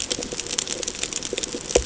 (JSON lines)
{"label": "ambient", "recorder": "HydroMoth"}